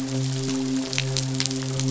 {"label": "biophony, midshipman", "recorder": "SoundTrap 500"}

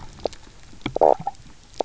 {"label": "biophony, knock croak", "recorder": "SoundTrap 300"}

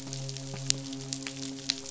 {"label": "biophony, midshipman", "recorder": "SoundTrap 500"}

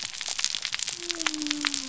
{"label": "biophony", "recorder": "SoundTrap 300"}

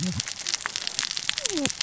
{"label": "biophony, cascading saw", "recorder": "SoundTrap 600 or HydroMoth"}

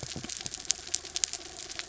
{"label": "anthrophony, mechanical", "recorder": "SoundTrap 300"}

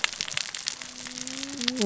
{"label": "biophony, cascading saw", "recorder": "SoundTrap 600 or HydroMoth"}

